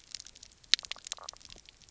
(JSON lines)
{"label": "biophony, knock croak", "recorder": "SoundTrap 300"}